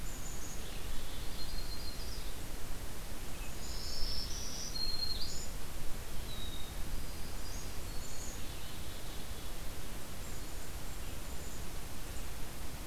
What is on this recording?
Black-capped Chickadee, Yellow-rumped Warbler, Black-throated Green Warbler